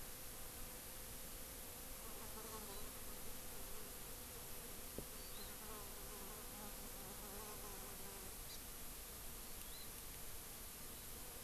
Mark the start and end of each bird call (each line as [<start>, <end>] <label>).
[2.61, 2.91] Hawaii Amakihi (Chlorodrepanis virens)
[5.11, 5.51] Hawaii Amakihi (Chlorodrepanis virens)
[8.41, 8.61] Hawaii Amakihi (Chlorodrepanis virens)
[9.41, 9.91] Hawaii Amakihi (Chlorodrepanis virens)